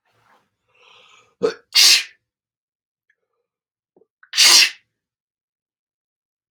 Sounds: Sneeze